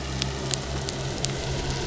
{"label": "biophony", "recorder": "SoundTrap 300"}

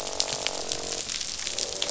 {"label": "biophony, croak", "recorder": "SoundTrap 500"}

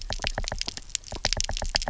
{"label": "biophony, knock", "recorder": "SoundTrap 300"}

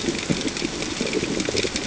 {"label": "ambient", "recorder": "HydroMoth"}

